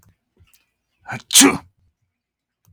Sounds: Sneeze